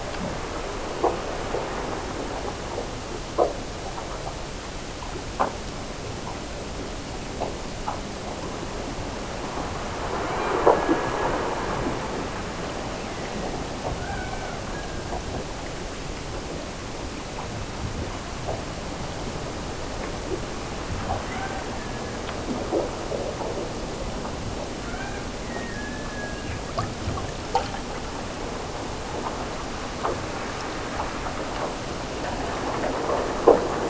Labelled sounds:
10.1	11.4	killer whale, Bigg's (transient), Gulf of Alaska transient, 1.2 to 4.1 kHz
12.7	15.4	killer whale, Bigg's (transient), Gulf of Alaska transient, 0.55 to 2.8 kHz
21.2	22.5	killer whale, Bigg's (transient), Gulf of Alaska transient, 0.55 to 2.5 kHz
24.8	26.7	killer whale, Bigg's (transient), Gulf of Alaska transient, 0.60 to 2.4 kHz

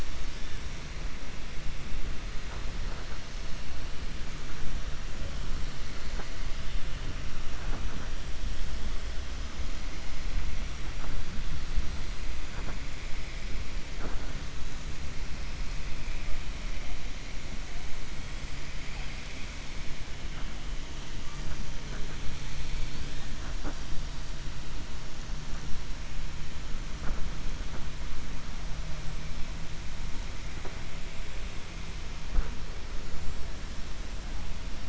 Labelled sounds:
33.0	33.4	killer whale, 6.8 to 7.8 kHz

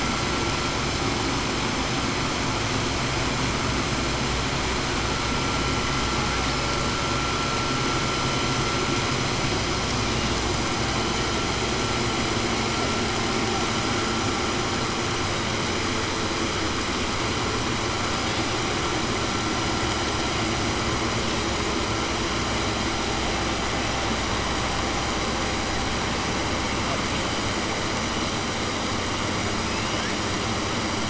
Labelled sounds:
29.6	30.1	killer whale, southern resident, 1.6 to 3.6 kHz

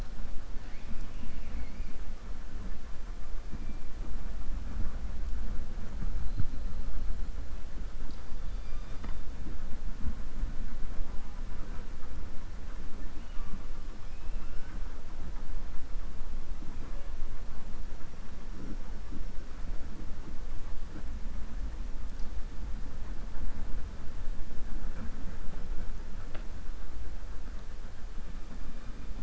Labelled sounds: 0.5	1.9	killer whale, 1.5 to 4.5 kHz
14.0	14.8	killer whale, 1.3 to 3.3 kHz

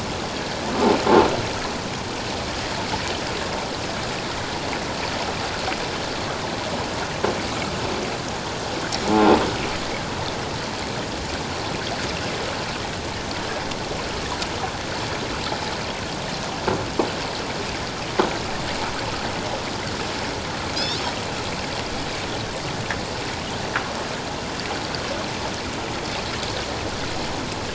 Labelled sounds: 20.7	21.0	croaking sound likely from a nearby submerged object, 3.9 to 4.7 kHz

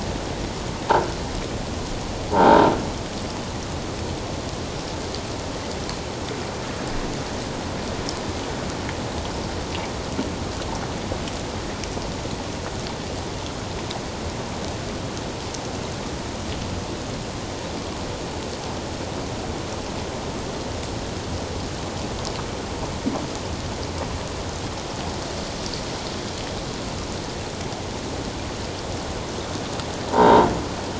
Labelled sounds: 2.3	2.7	croaking sound likely from a nearby submerged object, 0.78 to 1.6 kHz
30.1	30.5	croaking sound likely from a nearby submerged object, 0.81 to 3.8 kHz

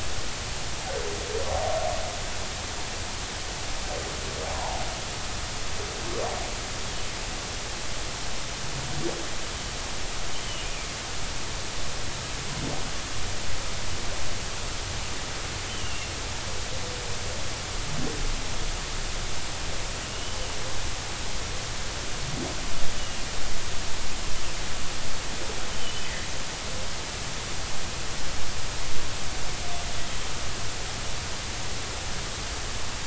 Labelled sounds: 4.5	4.8	humpback whale, 0.80 to 1.1 kHz
15.7	16.1	humpback whale, 2.6 to 3.1 kHz
20.1	20.4	humpback whale, 2.8 to 3.1 kHz
23.0	23.2	humpback whale, 2.8 to 3.0 kHz
25.7	26.0	humpback whale, 2.9 to 3.2 kHz

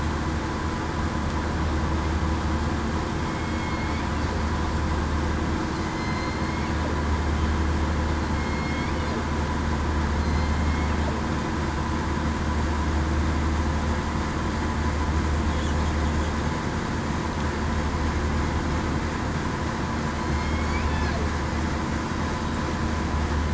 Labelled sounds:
3.2	4.0	killer whale, southern resident, 2.1 to 2.4 kHz
5.8	6.7	killer whale, southern resident, 2.0 to 4.2 kHz
8.3	8.9	killer whale, southern resident, 2.1 to 2.2 kHz
10.2	10.5	killer whale, southern resident, 4.1 to 4.2 kHz
20.3	20.7	killer whale, southern resident, 2.1 to 2.2 kHz

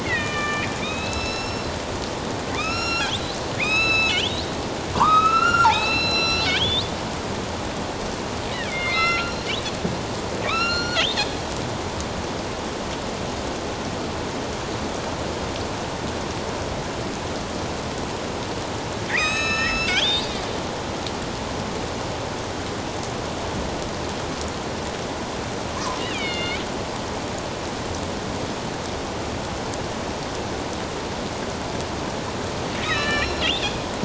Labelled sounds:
0.0	4.4	killer whale, northern resident, A clan, AB subclan, 1.1 to 8.0 kHz
4.9	6.9	killer whale, northern resident, A clan, AB subclan, 0.81 to 8.0 kHz
8.7	9.5	killer whale, northern resident, A clan, AB subclan, 1.2 to 5.7 kHz
10.4	11.4	killer whale, northern resident, A clan, AB subclan, 1.1 to 7.1 kHz
19.1	20.4	killer whale, northern resident, A clan, AB subclan, 1.2 to 8.0 kHz
26.0	26.6	killer whale, northern resident, A clan, AB subclan, 2.1 to 4.5 kHz
32.8	33.8	killer whale, northern resident, A clan, AB subclan, 1.2 to 5.5 kHz

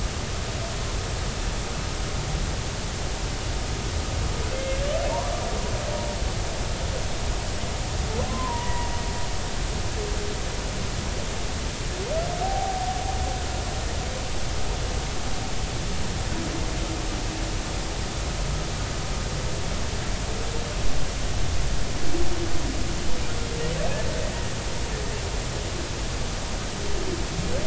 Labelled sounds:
4.5	4.8	humpback whale, 2.0 to 2.2 kHz
8.3	8.9	humpback whale, 0.90 to 2.0 kHz
12.4	12.9	humpback whale, 0.80 to 0.83 kHz

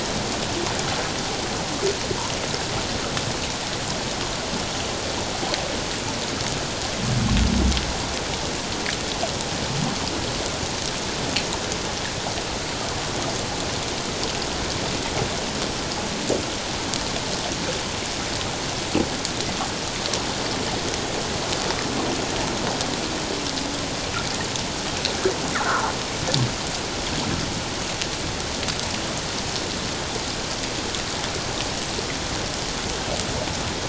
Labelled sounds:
25.5	25.9	fish, 0.84 to 1.6 kHz

